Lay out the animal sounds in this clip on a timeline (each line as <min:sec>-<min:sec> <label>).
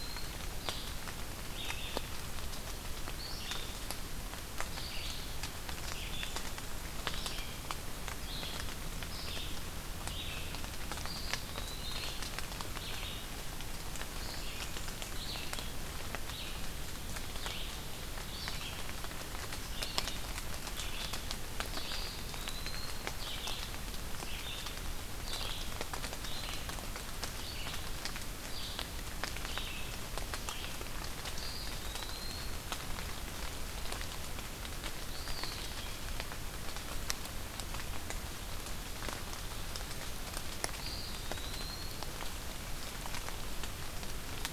0:00.0-0:30.9 Red-eyed Vireo (Vireo olivaceus)
0:10.9-0:12.3 Eastern Wood-Pewee (Contopus virens)
0:21.8-0:23.0 Eastern Wood-Pewee (Contopus virens)
0:31.2-0:32.6 Eastern Wood-Pewee (Contopus virens)
0:35.0-0:35.7 Eastern Wood-Pewee (Contopus virens)
0:40.6-0:42.2 Eastern Wood-Pewee (Contopus virens)